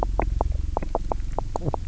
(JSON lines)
{"label": "biophony, knock croak", "recorder": "SoundTrap 300"}